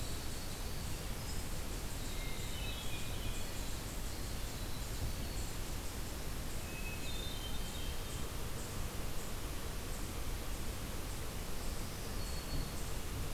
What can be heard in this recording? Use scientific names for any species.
Catharus guttatus, Tamias striatus